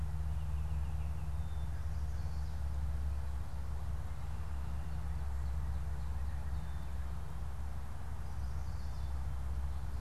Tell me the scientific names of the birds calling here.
Icterus galbula, Setophaga pensylvanica, Cardinalis cardinalis